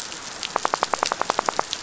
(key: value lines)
label: biophony, knock
recorder: SoundTrap 500